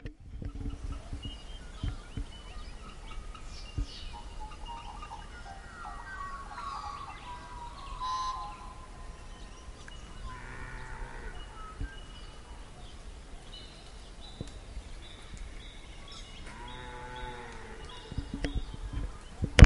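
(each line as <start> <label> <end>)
0.0 A magpie warbles with melodic, varying tones. 10.0
10.0 A cow moos. 11.6
11.6 A magpie is warbling. 16.5
16.5 A cow moos deeply. 18.1
18.1 A magpie is warbling. 19.6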